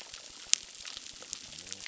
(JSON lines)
{"label": "biophony", "recorder": "SoundTrap 600"}